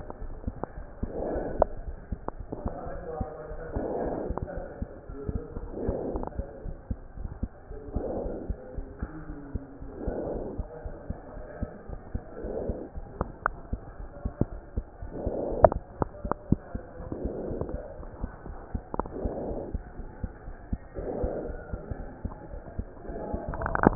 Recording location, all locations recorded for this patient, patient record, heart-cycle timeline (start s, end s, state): aortic valve (AV)
aortic valve (AV)+pulmonary valve (PV)+tricuspid valve (TV)+mitral valve (MV)
#Age: Child
#Sex: Female
#Height: 95.0 cm
#Weight: 17.5 kg
#Pregnancy status: False
#Murmur: Absent
#Murmur locations: nan
#Most audible location: nan
#Systolic murmur timing: nan
#Systolic murmur shape: nan
#Systolic murmur grading: nan
#Systolic murmur pitch: nan
#Systolic murmur quality: nan
#Diastolic murmur timing: nan
#Diastolic murmur shape: nan
#Diastolic murmur grading: nan
#Diastolic murmur pitch: nan
#Diastolic murmur quality: nan
#Outcome: Normal
#Campaign: 2015 screening campaign
0.00	6.98	unannotated
6.98	7.18	diastole
7.18	7.30	S1
7.30	7.40	systole
7.40	7.50	S2
7.50	7.69	diastole
7.69	7.80	S1
7.80	7.94	systole
7.94	8.03	S2
8.03	8.23	diastole
8.23	8.31	S1
8.31	8.48	systole
8.48	8.57	S2
8.57	8.75	diastole
8.75	8.84	S1
8.84	9.00	systole
9.00	9.09	S2
9.09	9.27	diastole
9.27	9.36	S1
9.36	9.52	systole
9.52	9.60	S2
9.60	9.79	diastole
9.79	9.88	S1
9.88	10.04	systole
10.04	10.14	S2
10.14	10.34	diastole
10.34	10.44	S1
10.44	10.57	systole
10.57	10.66	S2
10.66	10.83	diastole
10.83	10.92	S1
10.92	11.08	systole
11.08	11.17	S2
11.17	11.33	diastole
11.33	11.43	S1
11.43	11.60	systole
11.60	11.67	S2
11.67	11.87	diastole
11.87	11.99	S1
11.99	12.13	systole
12.13	12.23	S2
12.23	12.43	diastole
12.43	23.95	unannotated